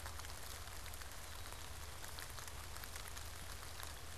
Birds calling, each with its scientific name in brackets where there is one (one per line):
Black-capped Chickadee (Poecile atricapillus)